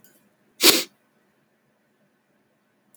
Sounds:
Sniff